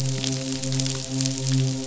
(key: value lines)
label: biophony, midshipman
recorder: SoundTrap 500